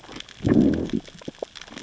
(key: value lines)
label: biophony, growl
recorder: SoundTrap 600 or HydroMoth